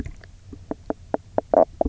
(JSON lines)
{"label": "biophony, knock croak", "recorder": "SoundTrap 300"}